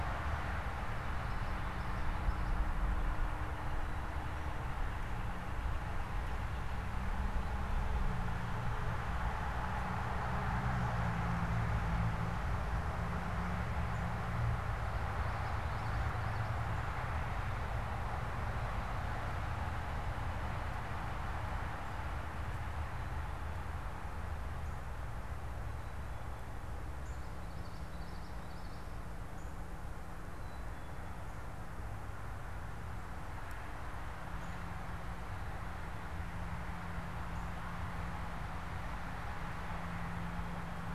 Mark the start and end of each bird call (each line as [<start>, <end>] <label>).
[0.97, 2.58] Common Yellowthroat (Geothlypis trichas)
[14.97, 16.57] Common Yellowthroat (Geothlypis trichas)
[27.57, 28.88] Common Yellowthroat (Geothlypis trichas)
[30.18, 30.98] Black-capped Chickadee (Poecile atricapillus)